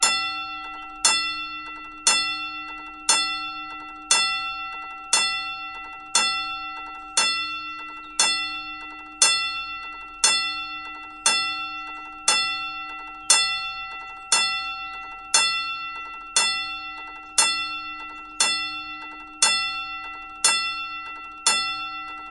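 0.0s Rhythmic, continuous signal outdoors. 22.3s

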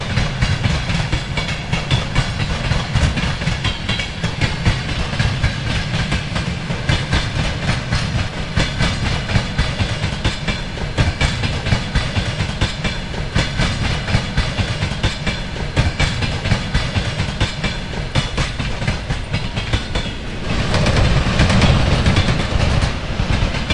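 0.0s A train passes by. 23.7s
20.4s The clattering of train wheels on rails. 23.7s

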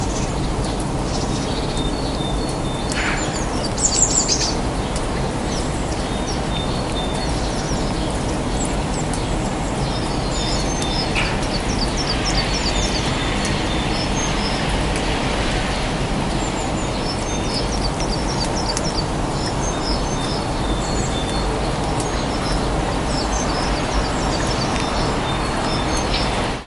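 0.0s Different birds sing and chirp with varying pitches and rhythms. 26.7s
0.0s Leaves rustle softly and continuously. 26.7s
0.0s Wind blowing consistently with occasional strong gusts. 26.7s

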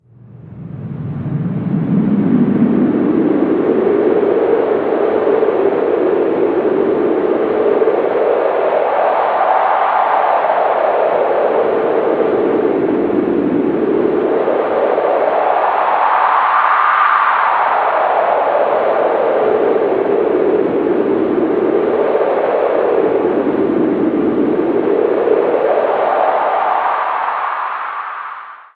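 0.1s Cold, howling wind echoes with periodic amplifications fading away toward the end. 28.7s

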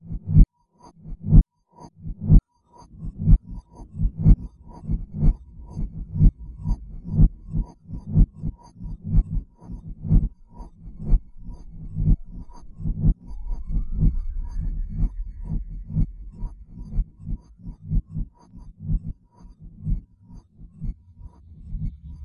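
0.0s A wind instrument emits a quiet, pulsating sound that gradually fades. 22.2s

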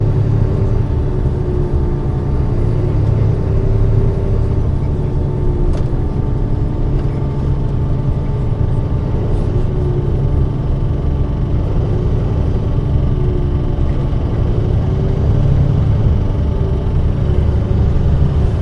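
0.0s A heavy vehicle is continuously moving nearby. 18.6s

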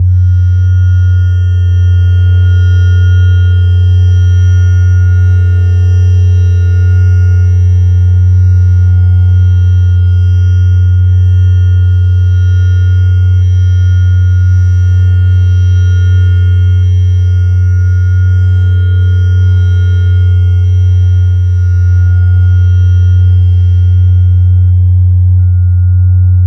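0.0s Constant metallic divergent sound. 26.5s

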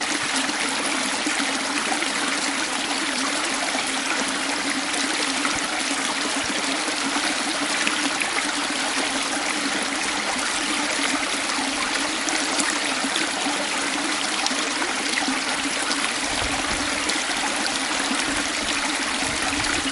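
0.0s Water gently flows down a small creek. 19.9s

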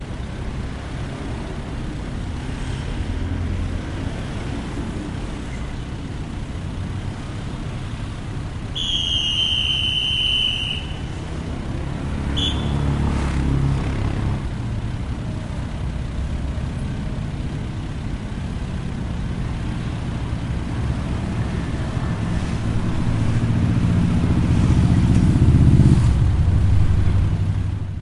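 0.0s Continuous traffic noise from passing vehicles outdoors. 28.0s
8.7s A sharp whistle sounds continuously outdoors. 11.0s
12.2s A sharp, short whistle sounds outdoors. 12.9s

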